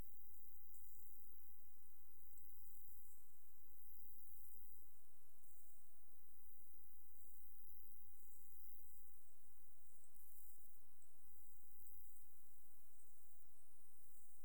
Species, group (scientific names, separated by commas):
Pseudochorthippus parallelus, Orthoptera